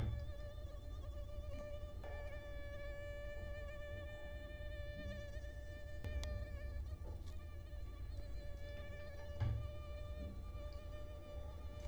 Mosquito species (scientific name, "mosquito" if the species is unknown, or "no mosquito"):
Culex quinquefasciatus